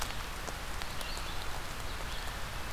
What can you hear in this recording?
Red-eyed Vireo